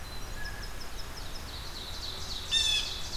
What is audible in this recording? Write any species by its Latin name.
Troglodytes hiemalis, Seiurus aurocapilla, Cyanocitta cristata